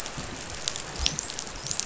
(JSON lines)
{"label": "biophony, dolphin", "recorder": "SoundTrap 500"}